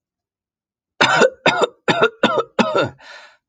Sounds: Cough